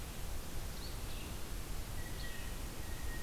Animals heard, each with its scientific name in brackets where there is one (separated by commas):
Blue Jay (Cyanocitta cristata), Red-eyed Vireo (Vireo olivaceus)